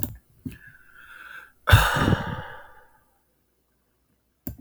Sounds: Sigh